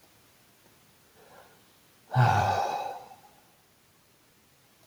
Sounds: Sigh